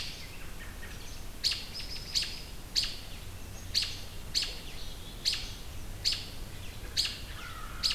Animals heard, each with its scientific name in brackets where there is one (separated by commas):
American Crow (Corvus brachyrhynchos), American Robin (Turdus migratorius)